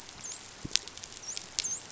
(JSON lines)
{"label": "biophony, dolphin", "recorder": "SoundTrap 500"}